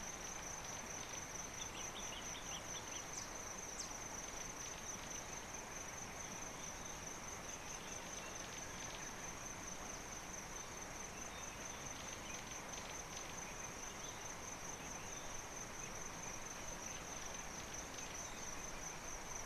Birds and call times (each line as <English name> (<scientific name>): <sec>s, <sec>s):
Common Bulbul (Pycnonotus barbatus): 2.2s